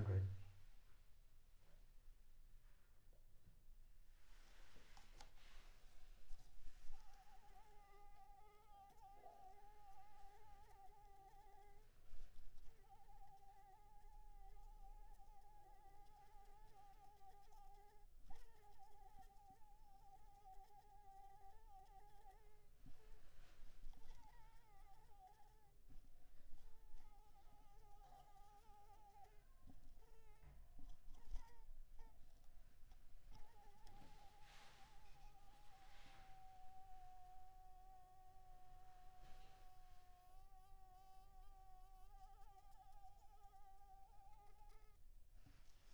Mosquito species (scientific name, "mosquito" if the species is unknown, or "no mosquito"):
Anopheles arabiensis